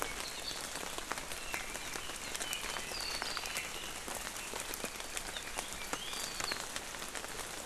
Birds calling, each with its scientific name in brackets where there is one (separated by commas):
Apapane (Himatione sanguinea)